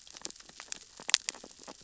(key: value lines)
label: biophony, sea urchins (Echinidae)
recorder: SoundTrap 600 or HydroMoth